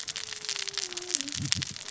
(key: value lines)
label: biophony, cascading saw
recorder: SoundTrap 600 or HydroMoth